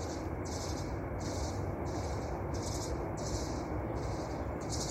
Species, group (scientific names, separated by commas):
Gymnotympana varicolor, Cicadidae